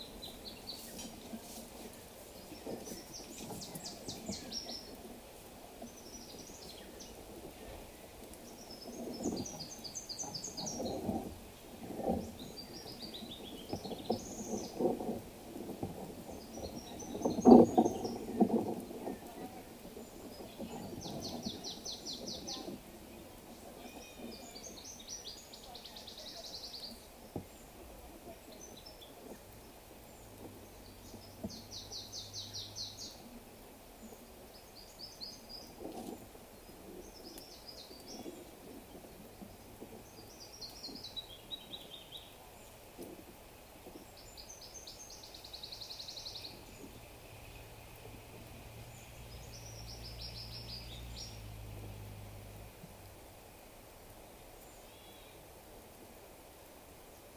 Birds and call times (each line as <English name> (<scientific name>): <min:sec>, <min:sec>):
Brown Woodland-Warbler (Phylloscopus umbrovirens): 0:04.3, 0:10.2, 0:17.5, 0:32.7, 0:50.4
African Emerald Cuckoo (Chrysococcyx cupreus): 0:19.2